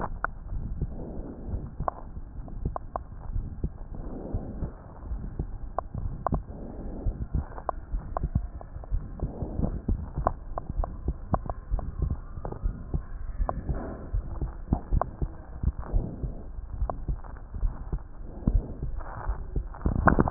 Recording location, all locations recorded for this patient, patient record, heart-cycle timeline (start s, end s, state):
aortic valve (AV)
aortic valve (AV)+pulmonary valve (PV)+tricuspid valve (TV)+mitral valve (MV)
#Age: Child
#Sex: Male
#Height: 130.0 cm
#Weight: 30.3 kg
#Pregnancy status: False
#Murmur: Present
#Murmur locations: aortic valve (AV)+mitral valve (MV)+pulmonary valve (PV)+tricuspid valve (TV)
#Most audible location: mitral valve (MV)
#Systolic murmur timing: Holosystolic
#Systolic murmur shape: Plateau
#Systolic murmur grading: II/VI
#Systolic murmur pitch: Low
#Systolic murmur quality: Blowing
#Diastolic murmur timing: nan
#Diastolic murmur shape: nan
#Diastolic murmur grading: nan
#Diastolic murmur pitch: nan
#Diastolic murmur quality: nan
#Outcome: Normal
#Campaign: 2015 screening campaign
0.00	3.02	unannotated
3.02	3.32	diastole
3.32	3.46	S1
3.46	3.60	systole
3.60	3.72	S2
3.72	4.30	diastole
4.30	4.42	S1
4.42	4.58	systole
4.58	4.70	S2
4.70	5.10	diastole
5.10	5.24	S1
5.24	5.38	systole
5.38	5.50	S2
5.50	6.02	diastole
6.02	6.16	S1
6.16	6.32	systole
6.32	6.44	S2
6.44	7.04	diastole
7.04	7.16	S1
7.16	7.30	systole
7.30	7.42	S2
7.42	7.92	diastole
7.92	8.02	S1
8.02	8.20	systole
8.20	8.32	S2
8.32	8.90	diastole
8.90	9.04	S1
9.04	9.20	systole
9.20	9.30	S2
9.30	9.88	diastole
9.88	10.04	S1
10.04	10.16	systole
10.16	10.26	S2
10.26	10.76	diastole
10.76	10.90	S1
10.90	11.06	systole
11.06	11.18	S2
11.18	11.72	diastole
11.72	11.86	S1
11.86	12.00	systole
12.00	12.12	S2
12.12	12.64	diastole
12.64	12.76	S1
12.76	12.92	systole
12.92	13.06	S2
13.06	13.37	diastole
13.37	13.51	S1
13.51	13.69	systole
13.69	13.79	S2
13.79	14.11	diastole
14.11	14.23	S1
14.23	14.41	systole
14.41	14.49	S2
14.49	14.70	diastole
14.70	14.82	S1
14.82	14.94	systole
14.94	15.10	S2
15.10	15.60	diastole
15.60	15.76	S1
15.76	15.92	systole
15.92	16.08	S2
16.08	16.74	diastole
16.74	16.90	S1
16.90	17.06	systole
17.06	17.17	S2
17.17	17.56	diastole
17.56	17.72	S1
17.72	17.90	systole
17.90	18.02	S2
18.02	18.48	diastole
18.48	20.30	unannotated